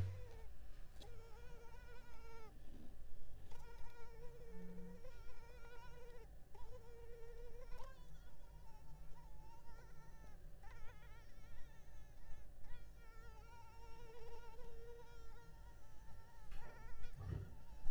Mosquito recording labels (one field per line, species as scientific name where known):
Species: Culex pipiens complex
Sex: female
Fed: unfed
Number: one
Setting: cup